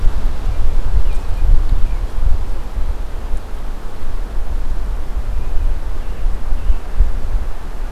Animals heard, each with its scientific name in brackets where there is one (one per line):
American Robin (Turdus migratorius)